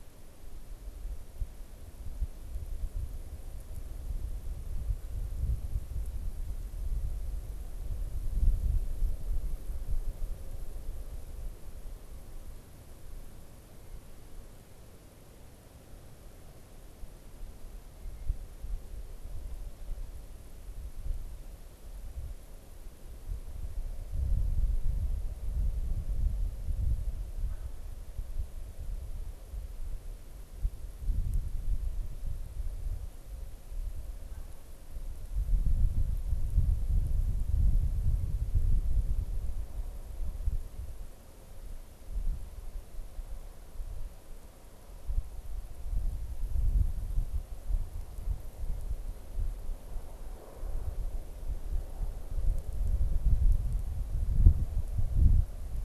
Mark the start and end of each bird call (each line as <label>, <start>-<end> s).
Canada Goose (Branta canadensis), 27.3-27.7 s